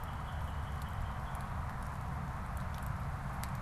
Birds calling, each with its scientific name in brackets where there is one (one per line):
Northern Cardinal (Cardinalis cardinalis)